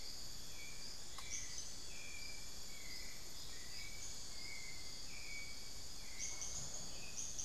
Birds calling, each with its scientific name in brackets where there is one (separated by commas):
unidentified bird, Hauxwell's Thrush (Turdus hauxwelli), Spix's Guan (Penelope jacquacu)